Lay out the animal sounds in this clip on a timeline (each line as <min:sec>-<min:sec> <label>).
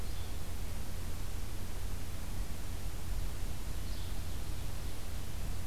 0:00.0-0:00.4 Yellow-bellied Flycatcher (Empidonax flaviventris)
0:03.5-0:05.2 Ovenbird (Seiurus aurocapilla)
0:03.8-0:04.2 Yellow-bellied Flycatcher (Empidonax flaviventris)